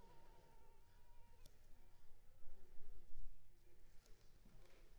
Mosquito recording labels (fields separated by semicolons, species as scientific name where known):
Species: Culex pipiens complex; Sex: female; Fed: unfed; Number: one; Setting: cup